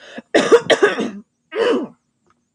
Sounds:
Throat clearing